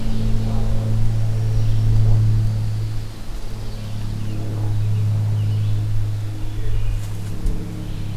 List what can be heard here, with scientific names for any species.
Seiurus aurocapilla, Setophaga virens, Vireo olivaceus, Hylocichla mustelina